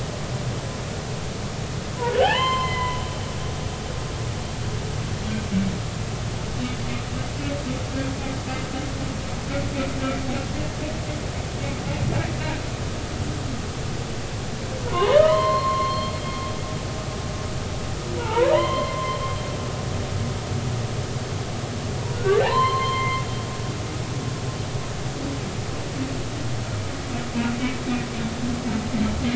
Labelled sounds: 2.2	3.0	humpback whale, 0.80 to 4.2 kHz
14.9	16.1	humpback whale, 0.80 to 4.4 kHz
18.2	19.2	humpback whale, 0.83 to 4.3 kHz
22.1	23.2	humpback whale, 0.80 to 4.3 kHz

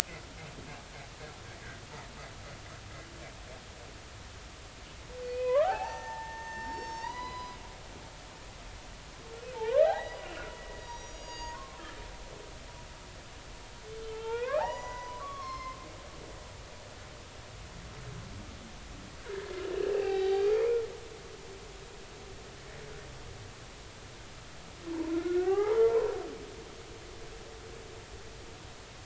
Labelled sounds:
5.2	7.6	humpback whale, 0.80 to 6.4 kHz
8.0	8.5	humpback whale, 1.8 to 3.0 kHz
9.5	11.8	humpback whale, 0.80 to 6.8 kHz
14.0	15.8	humpback whale, 0.80 to 6.0 kHz
19.2	19.6	humpback whale, 1.4 to 1.8 kHz
19.9	20.8	humpback whale, 0.80 to 4.6 kHz
24.9	26.1	humpback whale, 0.80 to 2.3 kHz

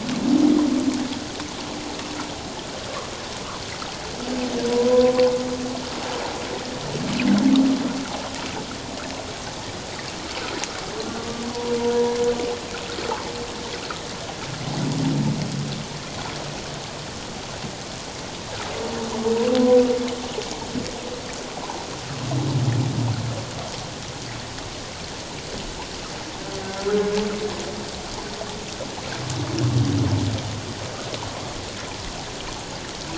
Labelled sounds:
4.7	5.1	humpback whale, 0.91 to 1.1 kHz

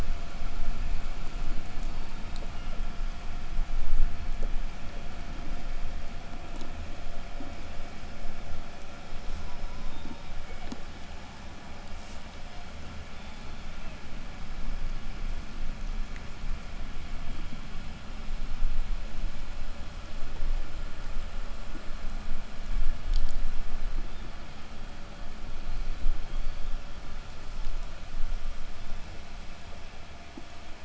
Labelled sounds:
1.7	2.8	killer whale, southern resident, 0.73 to 8.0 kHz
9.4	10.3	killer whale, southern resident, call S04, 0.78 to 1.5 kHz
9.6	10.9	killer whale, southern resident, 2.0 to 8.0 kHz
12.1	14.1	killer whale, southern resident, 0.25 to 5.7 kHz
24.0	27.4	killer whale, southern resident, 1.1 to 5.4 kHz

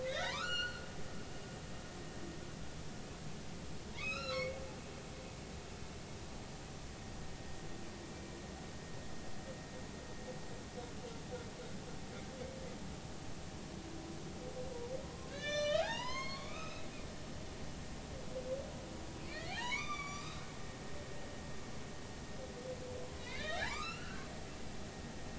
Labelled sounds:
0.1	0.8	humpback whale, 0.90 to 5.9 kHz
3.9	4.8	humpback whale, 0.80 to 5.7 kHz
8.0	8.4	humpback whale, 2.3 to 2.4 kHz
15.3	16.9	humpback whale, 0.80 to 7.6 kHz
19.3	20.4	humpback whale, 0.80 to 6.9 kHz
23.2	24.3	humpback whale, 0.80 to 4.4 kHz

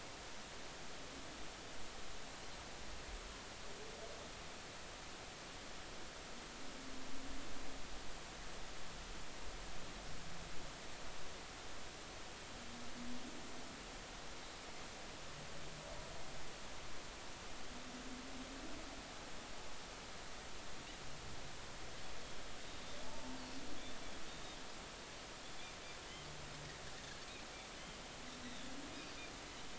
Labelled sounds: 23.0	23.4	Pacific white-sided dolphin, 0.80 to 0.99 kHz

